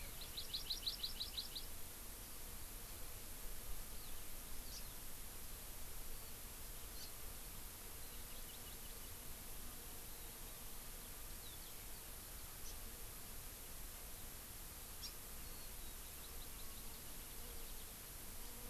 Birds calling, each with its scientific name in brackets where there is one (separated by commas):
Warbling White-eye (Zosterops japonicus), House Finch (Haemorhous mexicanus), Hawaii Amakihi (Chlorodrepanis virens)